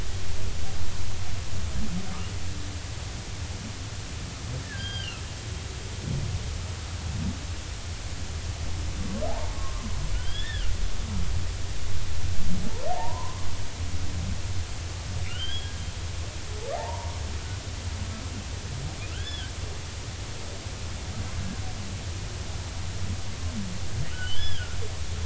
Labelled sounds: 4.6	5.2	humpback whale, 1.5 to 4.9 kHz
9.3	10.7	humpback whale, 0.80 to 3.5 kHz
12.9	13.5	humpback whale, 0.80 to 1.2 kHz
15.3	15.7	humpback whale, 1.2 to 5.0 kHz
16.7	17.2	humpback whale, 0.80 to 1.1 kHz
19.1	19.5	humpback whale, 1.3 to 3.6 kHz
24.1	24.8	humpback whale, 1.3 to 5.2 kHz

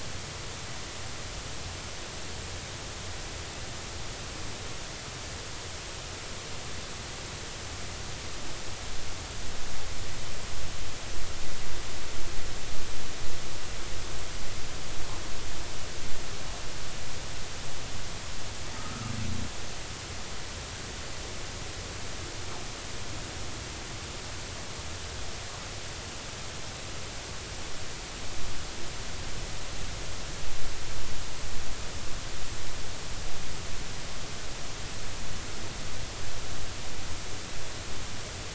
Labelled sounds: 18.8	19.1	humpback whale, 1.2 to 1.4 kHz

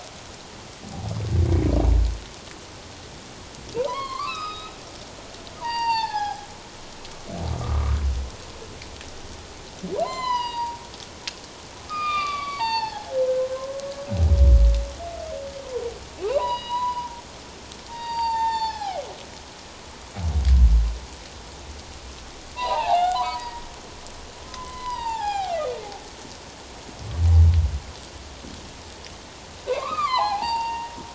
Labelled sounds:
3.8	4.7	humpback whale, 0.88 to 5.3 kHz
5.6	6.5	humpback whale, 0.78 to 5.2 kHz
7.6	8.0	humpback whale, 1.0 to 1.3 kHz
10.0	10.8	humpback whale, 0.88 to 7.3 kHz
11.9	13.8	humpback whale, 0.78 to 4.8 kHz
16.2	17.2	humpback whale, 0.78 to 5.0 kHz
17.9	19.1	humpback whale, 0.78 to 7.3 kHz
22.5	23.5	humpback whale, 0.78 to 3.2 kHz
24.5	25.7	humpback whale, 0.78 to 7.6 kHz
29.7	31.0	humpback whale, 0.78 to 4.8 kHz

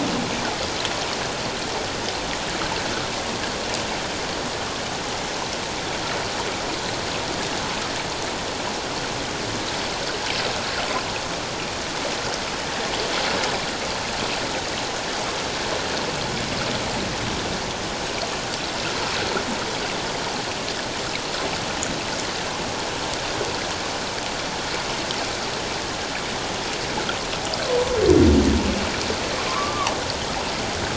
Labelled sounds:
29.5	29.9	humpback whale, 0.78 to 1.3 kHz

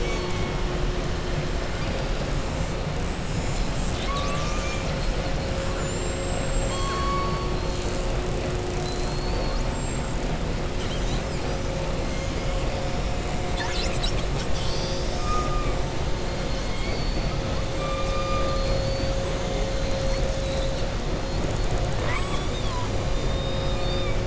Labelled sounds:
8.7	9.6	killer whale, southern resident, 4.0 to 5.2 kHz
21.9	22.8	killer whale, southern resident, 0.59 to 8.0 kHz
23.2	24.2	killer whale, southern resident, 2.3 to 5.0 kHz

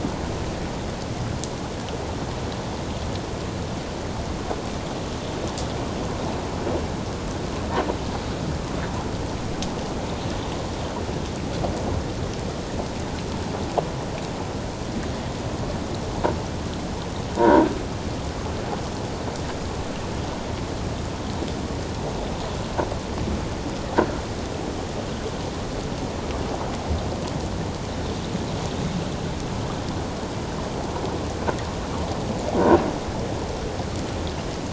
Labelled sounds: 17.4	17.7	croaking sound likely from a nearby submerged object, 0.88 to 1.7 kHz

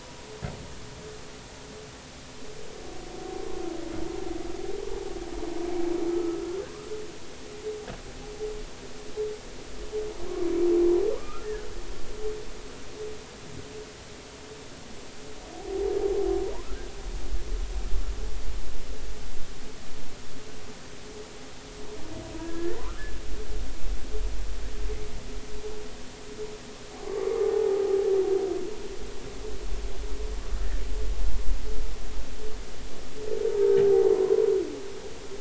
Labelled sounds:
6.1	6.4	humpback whale, 1.2 to 1.4 kHz
11.2	11.7	humpback whale, 0.93 to 1.9 kHz
15.5	15.9	humpback whale, 0.80 to 0.86 kHz
22.3	22.8	humpback whale, 0.90 to 1.9 kHz
27.0	27.8	humpback whale, 0.80 to 1.2 kHz
34.2	34.5	humpback whale, 0.93 to 1.1 kHz

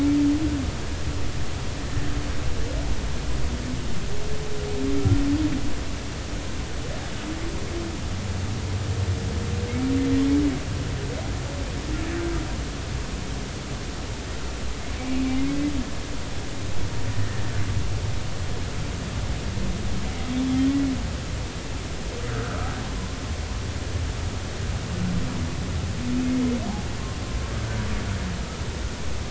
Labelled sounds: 22.3	22.7	humpback whale, 1.2 to 1.6 kHz

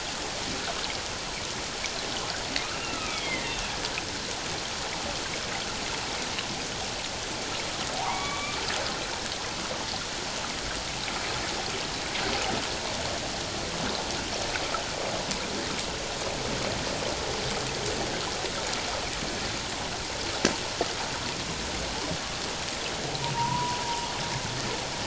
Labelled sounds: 2.8	3.5	humpback whale, 1.2 to 3.5 kHz
8.0	8.6	humpback whale, 0.78 to 2.4 kHz
23.3	23.8	humpback whale, 0.88 to 1.1 kHz

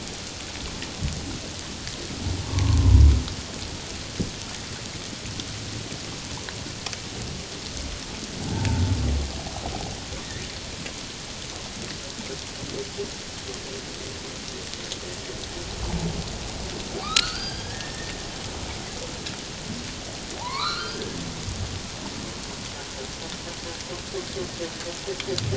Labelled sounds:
2.5	2.8	humpback whale, 0.88 to 1.2 kHz
8.4	8.8	humpback whale, 0.78 to 0.97 kHz
17.0	18.2	humpback whale, 1.1 to 5.0 kHz
20.4	21.2	humpback whale, 0.78 to 4.4 kHz

